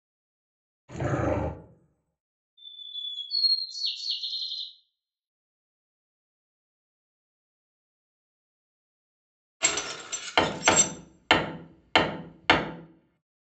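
First, at 0.88 seconds, you can hear a dog. Then at 2.57 seconds, there is bird vocalization. After that, at 9.6 seconds, gears are audible. Over it, at 10.34 seconds, comes the sound of a hammer.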